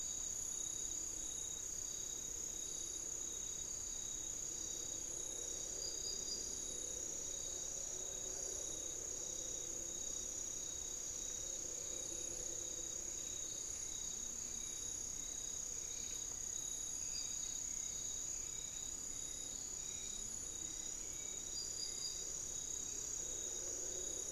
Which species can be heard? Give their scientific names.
Turdus hauxwelli, unidentified bird